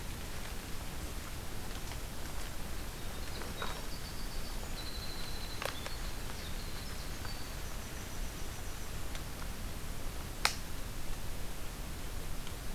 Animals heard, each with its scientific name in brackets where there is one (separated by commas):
Golden-crowned Kinglet (Regulus satrapa), Winter Wren (Troglodytes hiemalis)